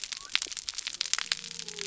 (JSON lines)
{"label": "biophony", "recorder": "SoundTrap 300"}